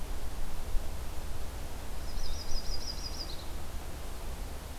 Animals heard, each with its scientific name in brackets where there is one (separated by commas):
Yellow-rumped Warbler (Setophaga coronata), Blue-headed Vireo (Vireo solitarius)